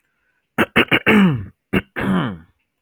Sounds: Throat clearing